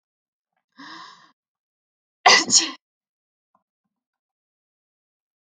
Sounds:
Sneeze